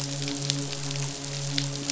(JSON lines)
{"label": "biophony, midshipman", "recorder": "SoundTrap 500"}